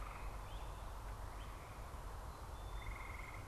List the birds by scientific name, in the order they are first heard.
Myiarchus crinitus, Poecile atricapillus